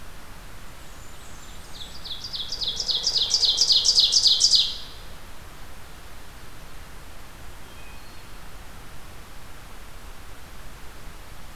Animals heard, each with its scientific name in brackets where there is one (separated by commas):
Wood Thrush (Hylocichla mustelina), Blackburnian Warbler (Setophaga fusca), Ovenbird (Seiurus aurocapilla)